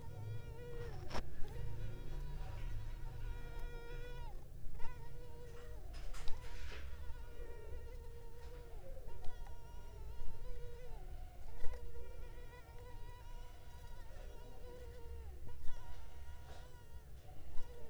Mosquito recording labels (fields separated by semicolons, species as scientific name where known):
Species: Culex pipiens complex; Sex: female; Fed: unfed; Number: one; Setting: cup